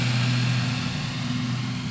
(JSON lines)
{"label": "anthrophony, boat engine", "recorder": "SoundTrap 500"}